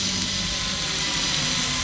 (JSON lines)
{"label": "anthrophony, boat engine", "recorder": "SoundTrap 500"}